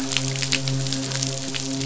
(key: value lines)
label: biophony, midshipman
recorder: SoundTrap 500